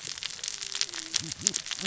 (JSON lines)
{"label": "biophony, cascading saw", "recorder": "SoundTrap 600 or HydroMoth"}